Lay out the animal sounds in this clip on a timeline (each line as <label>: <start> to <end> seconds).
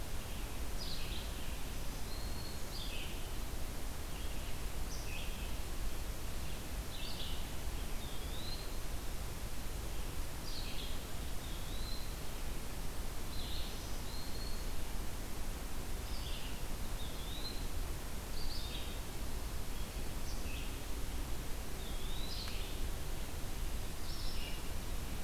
Red-eyed Vireo (Vireo olivaceus): 0.0 to 11.1 seconds
Black-throated Green Warbler (Setophaga virens): 1.7 to 2.9 seconds
Eastern Wood-Pewee (Contopus virens): 7.8 to 8.9 seconds
Eastern Wood-Pewee (Contopus virens): 11.2 to 12.1 seconds
Red-eyed Vireo (Vireo olivaceus): 13.0 to 25.2 seconds
Black-throated Green Warbler (Setophaga virens): 13.3 to 14.8 seconds
Eastern Wood-Pewee (Contopus virens): 16.8 to 18.4 seconds
Eastern Wood-Pewee (Contopus virens): 21.3 to 22.9 seconds